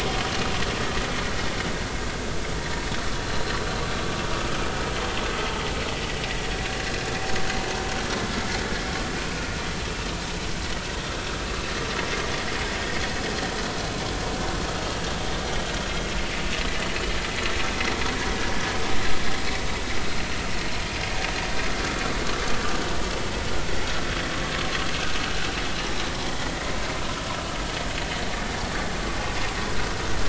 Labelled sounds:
3.2	3.5	vessel noise, 3.9 to 4.3 kHz

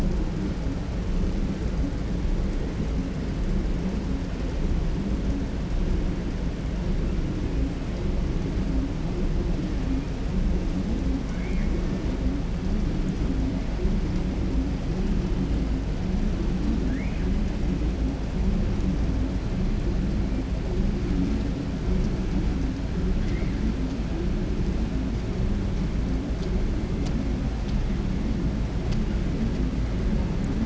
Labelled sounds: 11.2	11.7	killer whale, 1.1 to 2.5 kHz
16.7	17.3	killer whale, 1.5 to 3.0 kHz

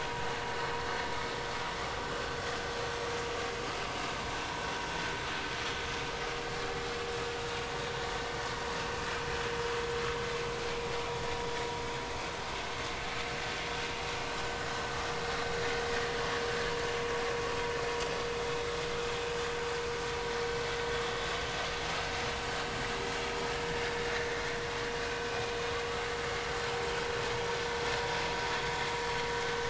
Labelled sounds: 25.0	25.3	vessel noise, 2.4 to 2.5 kHz

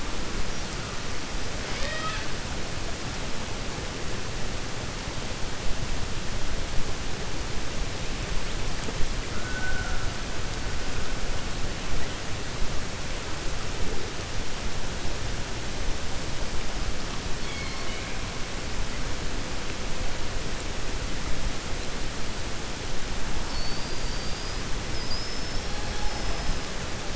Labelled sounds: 1.6	2.3	killer whale, 0.58 to 5.8 kHz
17.3	18.1	killer whale, 1.6 to 5.3 kHz
23.4	26.5	killer whale, 4.4 to 5.8 kHz

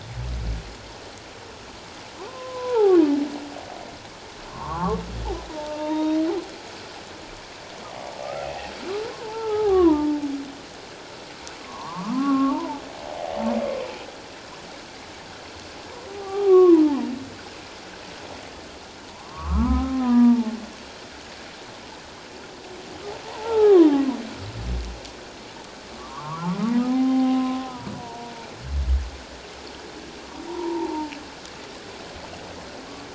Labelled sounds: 2.3	3.0	humpback whale, 0.78 to 1.5 kHz
4.5	5.0	humpback whale, 0.78 to 1.4 kHz
5.5	6.2	humpback whale, 0.84 to 3.8 kHz
8.2	8.5	humpback whale, 1.2 to 1.4 kHz
9.0	10.2	humpback whale, 0.78 to 1.4 kHz
11.6	12.8	humpback whale, 0.81 to 1.4 kHz
16.2	17.0	humpback whale, 0.78 to 1.3 kHz
19.1	20.6	humpback whale, 0.81 to 1.8 kHz
23.2	24.2	humpback whale, 0.78 to 1.4 kHz
26.0	27.7	humpback whale, 0.78 to 1.4 kHz
28.0	28.3	humpback whale, 0.88 to 1.0 kHz
30.5	31.1	humpback whale, 0.81 to 1.1 kHz

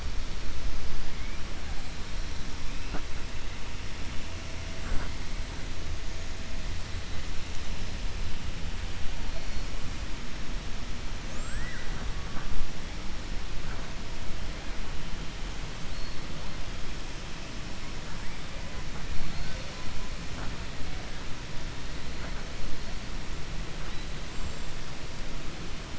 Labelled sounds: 11.3	12.1	killer whale, 0.55 to 2.0 kHz

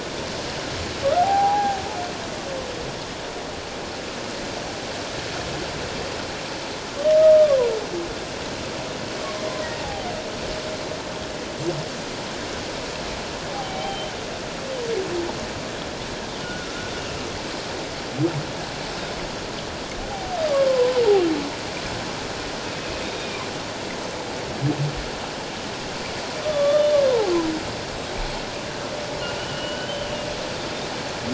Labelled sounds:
1.2	1.8	humpback whale, 0.78 to 0.91 kHz
7.2	7.6	humpback whale, 1.1 to 1.3 kHz
9.8	10.1	humpback whale, 0.78 to 0.94 kHz
13.5	14.1	humpback whale, 0.78 to 3.2 kHz
16.4	16.7	humpback whale, 1.3 to 1.6 kHz
20.1	21.0	humpback whale, 0.78 to 1.1 kHz
22.7	23.4	Pacific white-sided dolphin, 2.2 to 2.6 kHz
26.4	27.3	humpback whale, 0.78 to 3.7 kHz
29.4	30.1	humpback whale, 2.8 to 3.2 kHz

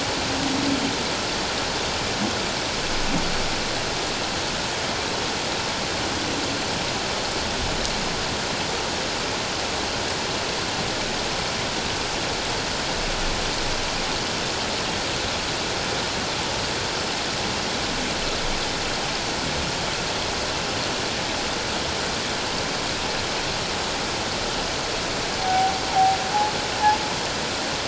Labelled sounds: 25.4	26.2	humpback whale, 0.78 to 0.97 kHz

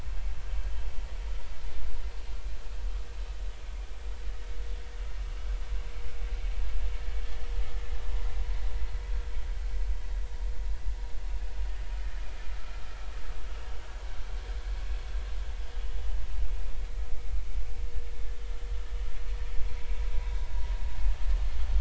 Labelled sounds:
12.6	12.8	vessel noise, 1.2 to 1.4 kHz

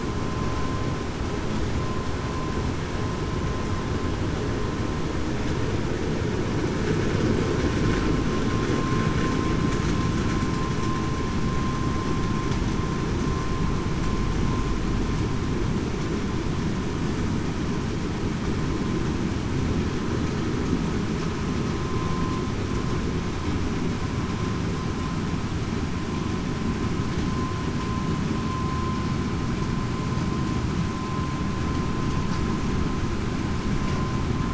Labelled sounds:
21.9	22.4	vessel noise, 1.0 to 1.1 kHz

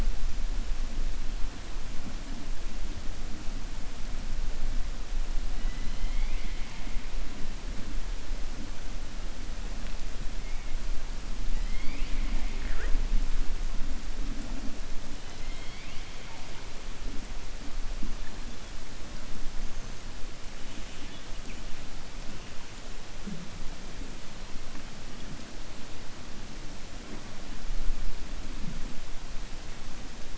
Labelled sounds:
5.5	6.9	killer whale, 1.9 to 4.2 kHz
15.3	16.1	killer whale, 2.0 to 4.6 kHz

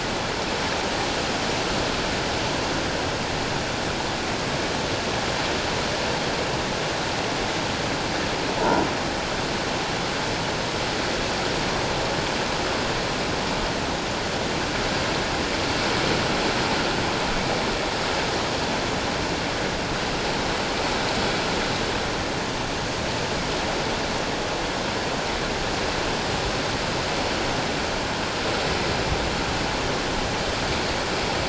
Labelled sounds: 8.6	8.8	croaking sound likely from a nearby submerged object, 0.88 to 1.5 kHz

